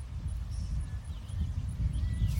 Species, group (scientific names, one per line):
Velarifictorus micado
Orthoptera